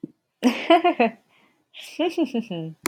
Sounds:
Laughter